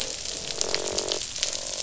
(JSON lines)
{"label": "biophony, croak", "recorder": "SoundTrap 500"}